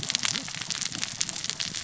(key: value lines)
label: biophony, cascading saw
recorder: SoundTrap 600 or HydroMoth